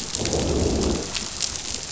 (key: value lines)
label: biophony, growl
recorder: SoundTrap 500